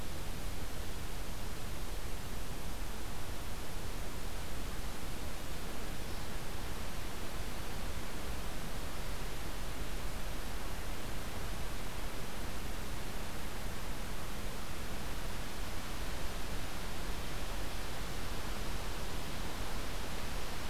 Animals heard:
forest ambience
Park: Acadia National Park